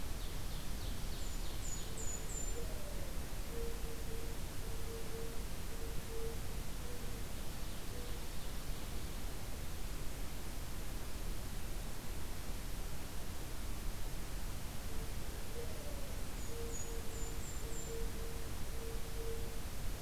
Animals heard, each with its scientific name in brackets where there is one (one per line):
Golden-crowned Kinglet (Regulus satrapa)
Ovenbird (Seiurus aurocapilla)
Mourning Dove (Zenaida macroura)